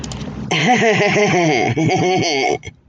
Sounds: Laughter